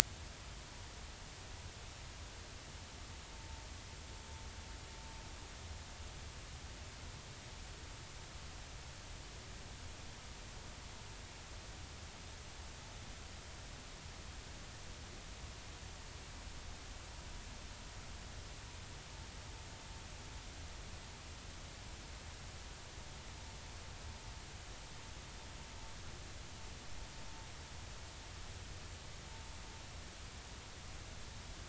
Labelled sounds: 3.3	3.6	vessel noise, 0.86 to 0.93 kHz

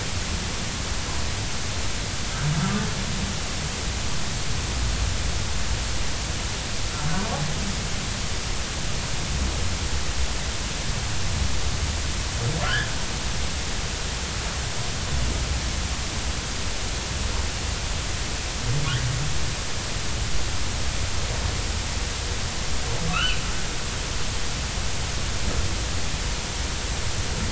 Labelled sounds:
12.6	12.9	humpback whale, 1.3 to 1.8 kHz
23.1	23.4	humpback whale, 1.1 to 3.1 kHz

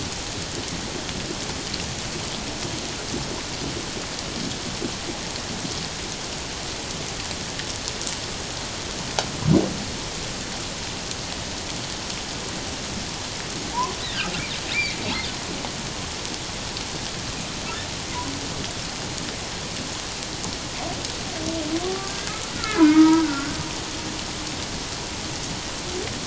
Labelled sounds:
14.7	15.0	humpback whale, 2.0 to 2.5 kHz
21.8	23.6	humpback whale, 0.88 to 2.3 kHz

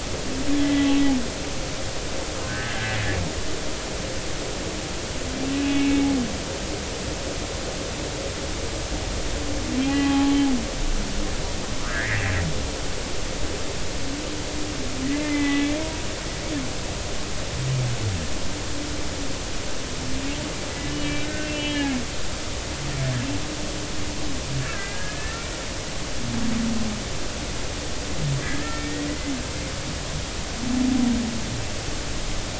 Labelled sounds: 0.6	0.9	humpback whale, 1.9 to 2.0 kHz
2.5	2.9	humpback whale, 1.5 to 1.9 kHz
5.5	6.1	humpback whale, 2.2 to 2.8 kHz
9.8	10.4	humpback whale, 0.80 to 2.9 kHz
11.8	12.2	humpback whale, 1.2 to 2.3 kHz
15.1	15.7	humpback whale, 1.9 to 2.1 kHz
20.9	21.9	humpback whale, 1.4 to 3.3 kHz
24.6	25.4	humpback whale, 1.5 to 1.9 kHz
28.4	29.1	humpback whale, 1.6 to 1.9 kHz

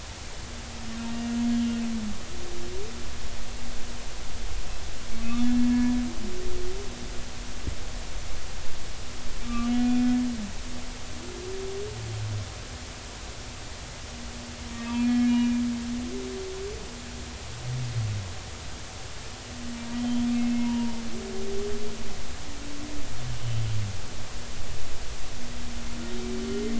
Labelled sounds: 1.1	1.8	humpback whale, 1.8 to 3.3 kHz
5.4	6.0	humpback whale, 1.6 to 1.8 kHz
9.4	10.1	humpback whale, 1.1 to 2.5 kHz
14.8	15.5	humpback whale, 1.6 to 2.9 kHz
19.9	21.0	humpback whale, 0.86 to 3.2 kHz

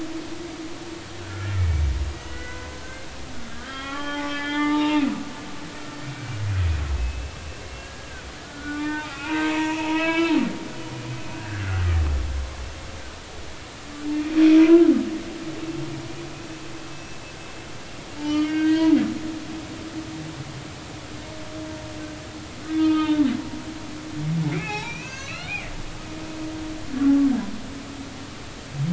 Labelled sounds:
0.2	5.1	humpback whale, 0.80 to 3.8 kHz
6.5	7.4	humpback whale, 2.4 to 2.7 kHz
7.8	10.4	humpback whale, 0.80 to 4.0 kHz
11.3	11.9	humpback whale, 1.3 to 1.9 kHz
14.6	14.9	humpback whale, 1.3 to 1.4 kHz
16.9	17.2	humpback whale, 2.6 to 2.7 kHz
18.2	19.0	humpback whale, 0.83 to 4.6 kHz
22.7	23.2	humpback whale, 0.86 to 3.8 kHz
24.5	25.7	humpback whale, 0.80 to 6.6 kHz

